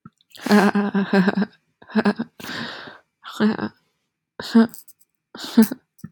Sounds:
Laughter